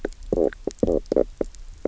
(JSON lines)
{"label": "biophony, knock croak", "recorder": "SoundTrap 300"}